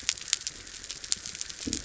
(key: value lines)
label: biophony
recorder: SoundTrap 300